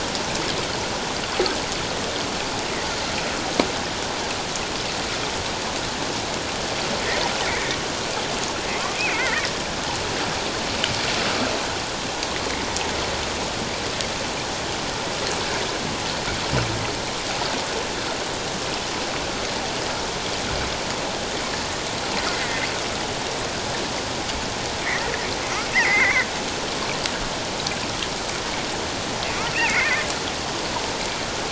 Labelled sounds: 9.2	9.5	killer whale, offshore, call OFF07, 1.7 to 2.2 kHz
22.3	22.6	killer whale, offshore, call OFF07, 1.8 to 2.1 kHz
24.8	26.3	killer whale, offshore, call OFF07, 1.7 to 2.3 kHz
29.5	30.0	killer whale, offshore, call OFF07, 1.9 to 2.9 kHz

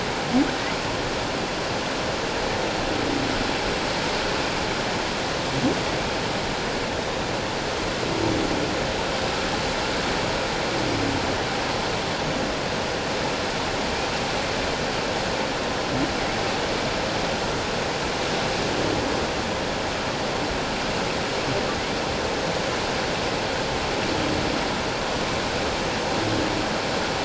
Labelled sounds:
7.0	7.2	humpback whale, 3.6 to 3.8 kHz

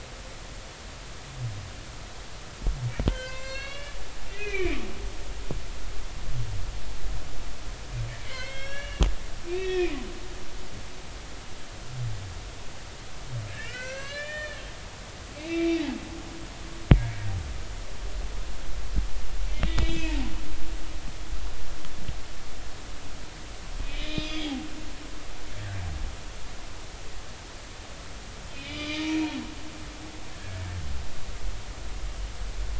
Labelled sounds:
3.1	4.0	humpback whale, 0.99 to 6.1 kHz
4.3	4.8	humpback whale, 1.7 to 2.6 kHz
8.2	10.0	humpback whale, 1.5 to 5.8 kHz
13.5	14.6	humpback whale, 1.3 to 6.4 kHz
15.4	15.8	humpback whale, 2.1 to 2.8 kHz
16.9	17.2	humpback whale, 2.1 to 2.3 kHz
19.6	20.3	humpback whale, 0.80 to 5.0 kHz
23.8	24.6	humpback whale, 2.4 to 5.1 kHz
28.6	29.1	humpback whale, 2.2 to 5.0 kHz
30.3	30.7	humpback whale, 1.5 to 1.8 kHz

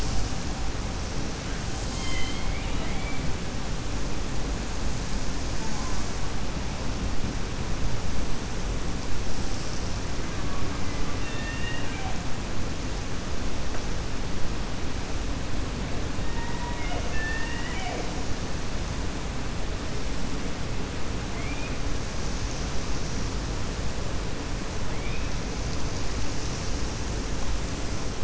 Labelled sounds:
10.2	12.2	killer whale, 0.72 to 3.8 kHz
16.2	18.1	killer whale, 0.47 to 3.6 kHz
21.3	21.7	killer whale, 2.0 to 3.3 kHz

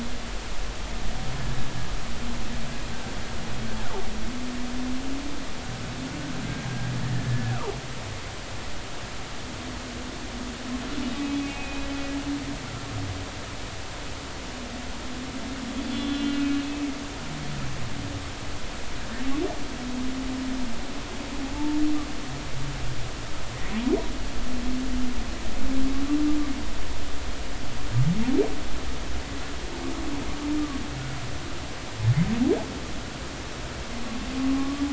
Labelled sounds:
7.0	7.6	humpback whale, 1.6 to 1.9 kHz
11.1	11.9	humpback whale, 2.4 to 2.6 kHz
15.8	16.4	humpback whale, 2.8 to 3.5 kHz
21.5	21.8	humpback whale, 0.83 to 0.99 kHz
34.6	34.8	humpback whale, 1.1 to 1.2 kHz

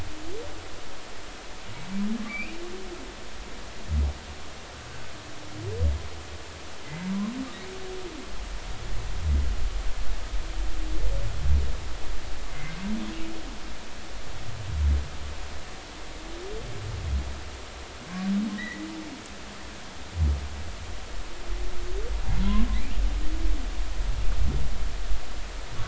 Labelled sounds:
2.3	2.5	humpback whale, 2.0 to 2.9 kHz
12.5	12.8	humpback whale, 2.0 to 2.2 kHz
18.6	18.9	humpback whale, 1.8 to 2.1 kHz

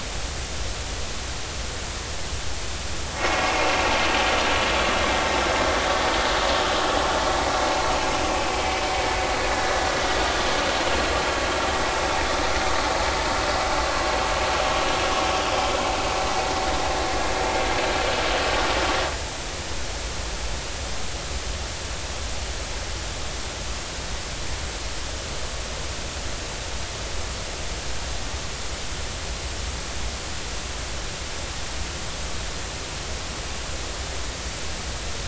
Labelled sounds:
7.3	7.6	vessel noise, 2.1 to 2.3 kHz

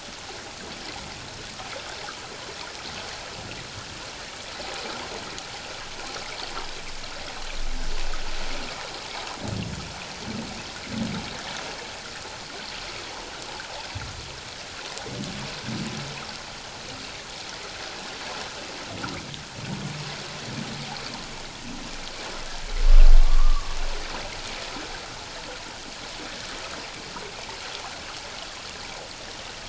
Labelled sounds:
23.2	23.8	humpback whale, 1.0 to 1.2 kHz

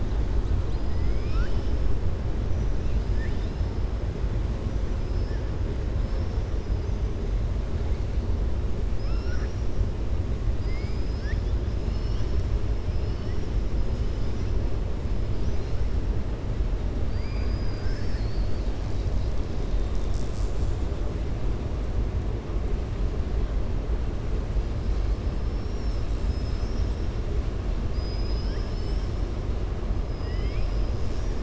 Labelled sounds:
0.6	1.8	killer whale, southern resident, 1.3 to 5.7 kHz
17.7	18.3	killer whale, southern resident, 1.5 to 2.1 kHz

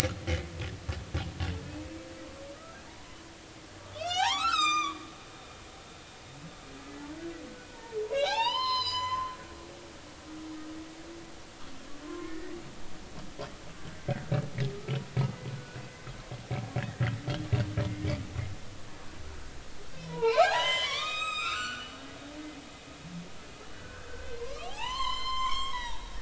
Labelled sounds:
2.9	6.0	humpback whale, 0.80 to 7.9 kHz
7.7	9.3	humpback whale, 0.80 to 8.0 kHz
12.0	12.5	humpback whale, 0.99 to 2.0 kHz
14.7	15.0	humpback whale, 1.2 to 1.5 kHz
16.8	18.2	humpback whale, 1.6 to 2.5 kHz
20.0	22.0	humpback whale, 0.80 to 7.7 kHz
23.7	26.1	humpback whale, 0.80 to 7.6 kHz

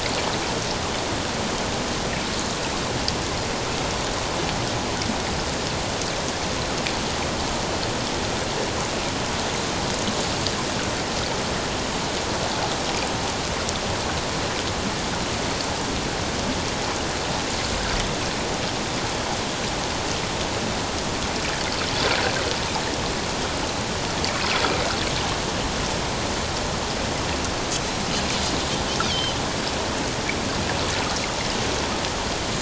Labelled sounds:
29.1	29.4	Pacific white-sided dolphin, 3.0 to 3.5 kHz

